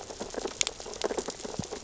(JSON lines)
{"label": "biophony, sea urchins (Echinidae)", "recorder": "SoundTrap 600 or HydroMoth"}